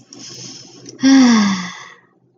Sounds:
Sigh